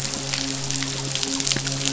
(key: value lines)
label: biophony, midshipman
recorder: SoundTrap 500